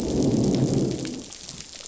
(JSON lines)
{"label": "biophony, growl", "recorder": "SoundTrap 500"}